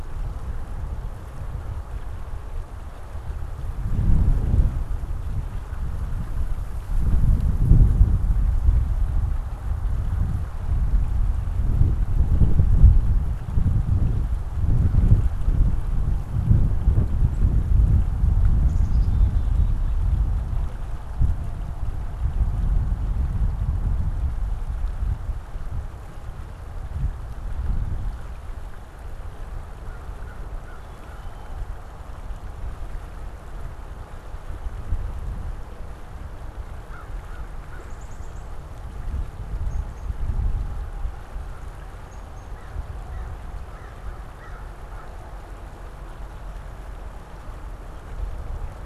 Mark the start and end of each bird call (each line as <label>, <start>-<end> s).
Black-capped Chickadee (Poecile atricapillus), 18.6-20.2 s
Black-capped Chickadee (Poecile atricapillus), 30.6-31.7 s
American Crow (Corvus brachyrhynchos), 36.4-38.1 s
Black-capped Chickadee (Poecile atricapillus), 37.6-40.3 s
Black-capped Chickadee (Poecile atricapillus), 41.9-42.7 s
American Crow (Corvus brachyrhynchos), 42.5-45.4 s